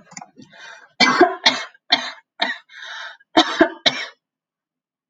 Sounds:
Cough